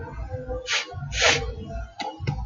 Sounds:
Sniff